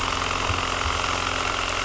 {"label": "anthrophony, boat engine", "recorder": "SoundTrap 300"}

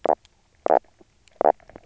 {"label": "biophony, knock croak", "recorder": "SoundTrap 300"}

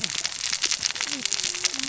{"label": "biophony, cascading saw", "recorder": "SoundTrap 600 or HydroMoth"}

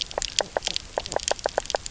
{"label": "biophony, knock croak", "recorder": "SoundTrap 300"}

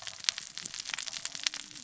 {"label": "biophony, cascading saw", "recorder": "SoundTrap 600 or HydroMoth"}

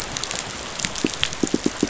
{"label": "biophony, pulse", "recorder": "SoundTrap 500"}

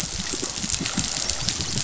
{"label": "biophony, dolphin", "recorder": "SoundTrap 500"}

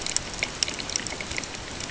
{"label": "ambient", "recorder": "HydroMoth"}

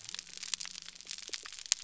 {"label": "biophony", "recorder": "SoundTrap 300"}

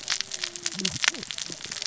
{"label": "biophony, cascading saw", "recorder": "SoundTrap 600 or HydroMoth"}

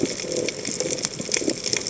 {"label": "biophony", "recorder": "HydroMoth"}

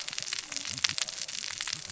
{"label": "biophony, cascading saw", "recorder": "SoundTrap 600 or HydroMoth"}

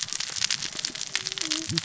{"label": "biophony, cascading saw", "recorder": "SoundTrap 600 or HydroMoth"}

